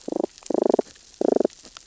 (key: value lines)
label: biophony, damselfish
recorder: SoundTrap 600 or HydroMoth